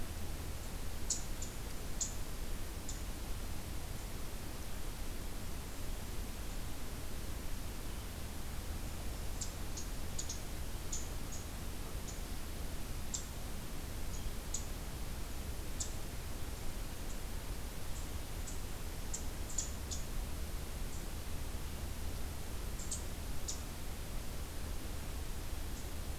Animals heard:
forest ambience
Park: Hubbard Brook Experimental Forest